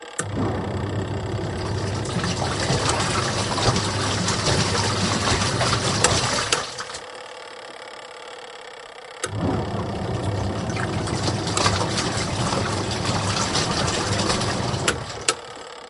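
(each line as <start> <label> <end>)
0.0 A washing machine timer ticks quietly at a fast pace. 15.9
0.1 A washing machine activates a switch. 0.3
0.2 A washing machine runs a gentle spin cycle. 7.0
1.8 The washing machine bubbles water onto the laundry. 6.7
5.9 A washing machine activates a switch. 6.7
9.1 A washing machine activates a switch. 9.3
9.2 A washing machine runs a gentle spin cycle. 15.4
10.7 The washing machine bubbles water onto the laundry. 14.9
14.8 A washing machine activates a switch. 15.4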